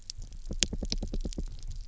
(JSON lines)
{"label": "biophony, knock", "recorder": "SoundTrap 300"}